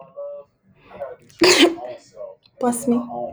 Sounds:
Sneeze